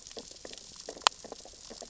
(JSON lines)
{"label": "biophony, sea urchins (Echinidae)", "recorder": "SoundTrap 600 or HydroMoth"}